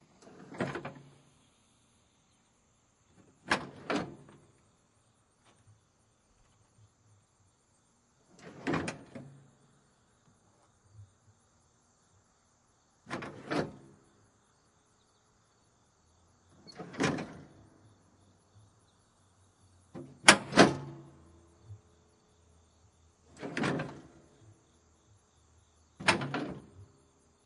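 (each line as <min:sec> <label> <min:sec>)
0:00.0 A bird chirps brightly in a repetitive pattern in the distant background. 0:27.5
0:00.0 Crickets chirp continuously in the distant background with whooshing and tinkling sounds. 0:27.5
0:00.3 A PTO linkage engages with a sharp metallic clunk in a quiet environment. 0:01.2
0:03.4 A PTO linkage disengages with a metallic snap in a quiet environment. 0:04.2
0:08.3 A PTO linkage engages with a sharp metallic clunk in a quiet environment. 0:09.4
0:13.0 A PTO linkage disengages with a metallic snap in a quiet environment. 0:13.8
0:16.5 A PTO linkage engages with a sharp metallic clunk in a quiet environment. 0:17.6
0:19.9 A PTO linkage disengages with a metallic snap in a quiet environment. 0:20.9
0:23.3 A PTO linkage engages with a sharp metallic clunk in a quiet environment. 0:24.1
0:26.0 A PTO linkage disengages with a metallic snap in a quiet environment. 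0:26.7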